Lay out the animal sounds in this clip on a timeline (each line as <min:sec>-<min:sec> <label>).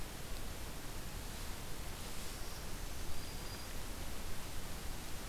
0:02.1-0:03.6 Black-throated Green Warbler (Setophaga virens)